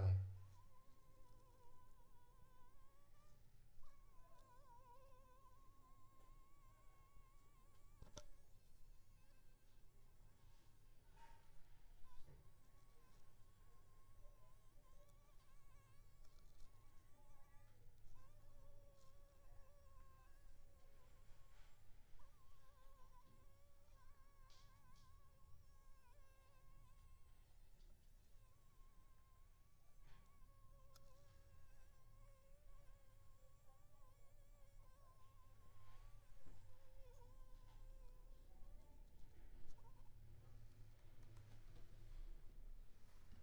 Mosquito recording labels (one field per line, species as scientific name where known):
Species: Anopheles funestus s.s.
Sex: female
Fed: unfed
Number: one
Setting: cup